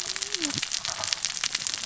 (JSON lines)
{"label": "biophony, cascading saw", "recorder": "SoundTrap 600 or HydroMoth"}